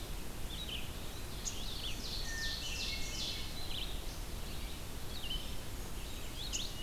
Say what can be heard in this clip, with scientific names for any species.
Vireo olivaceus, Seiurus aurocapilla, Catharus guttatus